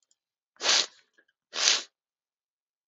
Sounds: Sniff